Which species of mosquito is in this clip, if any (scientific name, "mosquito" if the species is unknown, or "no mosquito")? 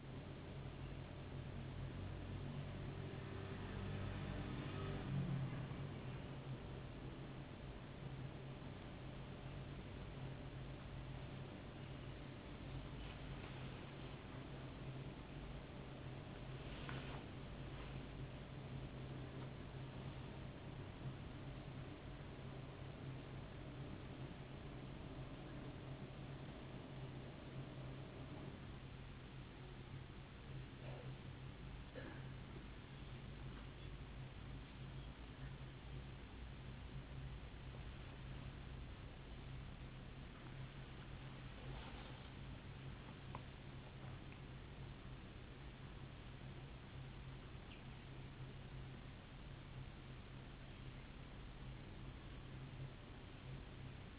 no mosquito